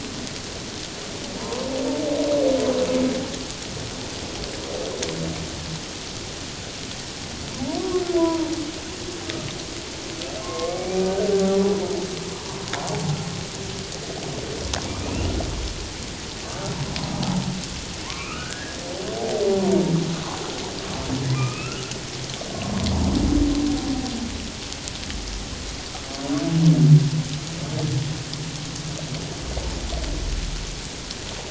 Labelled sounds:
1.4	1.7	humpback whale, 0.91 to 1.1 kHz
8.2	8.5	humpback whale, 0.88 to 1.1 kHz
10.4	11.1	humpback whale, 1.0 to 2.5 kHz
14.8	15.2	humpback whale, 2.2 to 2.6 kHz
18.1	18.8	humpback whale, 0.94 to 2.9 kHz
21.4	21.8	humpback whale, 1.1 to 2.9 kHz
22.5	22.8	humpback whale, 1.0 to 1.1 kHz

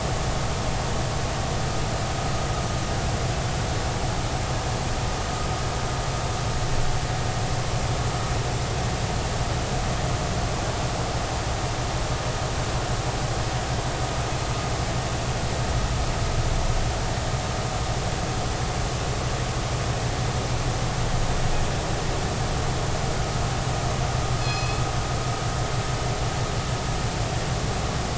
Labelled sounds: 24.4	24.8	killer whale, northern resident, G clan, call N24ii, 2.5 to 5.3 kHz

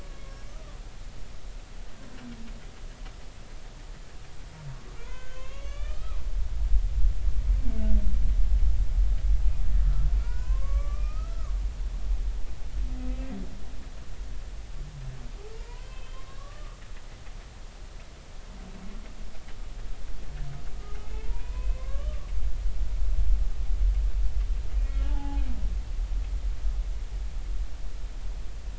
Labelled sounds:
0.5	0.8	humpback whale, 1.1 to 1.4 kHz
5.0	6.2	humpback whale, 0.96 to 4.0 kHz
9.8	11.5	humpback whale, 0.90 to 5.1 kHz
15.6	16.8	humpback whale, 0.90 to 3.2 kHz
21.0	22.3	humpback whale, 0.83 to 2.7 kHz
24.7	25.4	humpback whale, 0.80 to 2.0 kHz

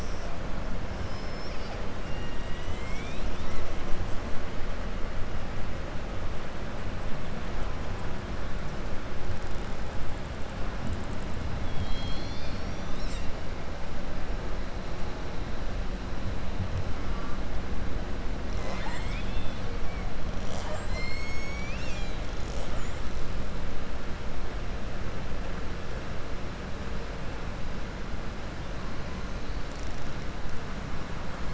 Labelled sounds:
1.0	1.8	killer whale, southern resident, 4.0 to 5.8 kHz
18.4	19.6	killer whale, southern resident, 0.66 to 8.0 kHz

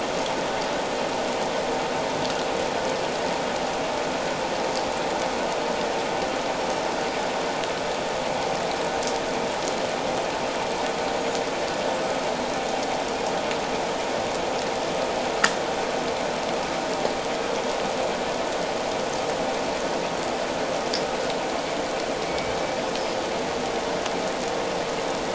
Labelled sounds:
11.1	11.4	humpback whale, 6.6 to 7.2 kHz
22.2	22.6	humpback whale, 2.2 to 2.4 kHz

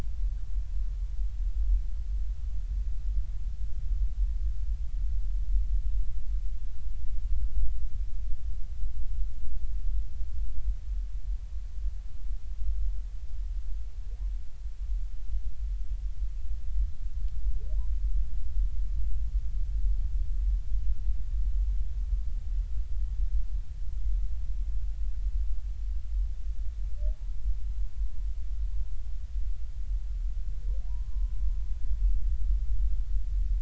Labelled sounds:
30.9	31.3	humpback whale, 0.90 to 1.2 kHz

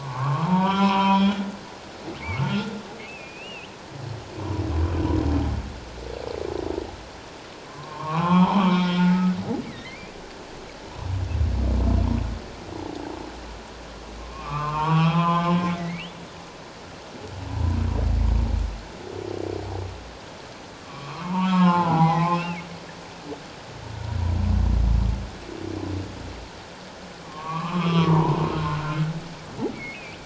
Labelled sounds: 0.0	1.4	humpback whale, 0.78 to 3.5 kHz
2.4	2.7	humpback whale, 1.3 to 1.5 kHz
3.0	3.7	humpback whale, 2.3 to 3.2 kHz
7.7	9.2	humpback whale, 0.78 to 3.5 kHz
9.7	10.1	humpback whale, 1.8 to 2.7 kHz
14.2	16.1	humpback whale, 0.78 to 3.4 kHz
17.5	17.8	humpback whale, 0.88 to 1.0 kHz
20.7	22.6	humpback whale, 0.78 to 3.4 kHz
27.2	28.4	humpback whale, 0.84 to 3.4 kHz
29.7	30.0	humpback whale, 2.1 to 2.3 kHz

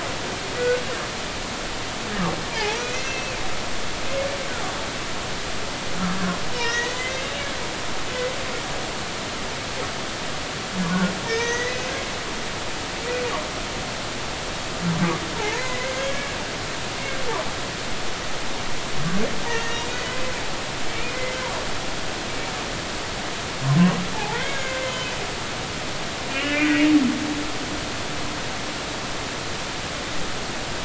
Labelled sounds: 2.5	3.4	humpback whale, 0.80 to 5.9 kHz
6.5	7.3	humpback whale, 1.8 to 5.8 kHz
11.3	11.8	humpback whale, 1.8 to 6.5 kHz
15.4	16.3	humpback whale, 0.80 to 1.7 kHz
19.5	20.2	humpback whale, 1.8 to 3.1 kHz
24.1	25.2	humpback whale, 0.80 to 3.1 kHz
26.3	26.8	humpback whale, 1.4 to 2.2 kHz

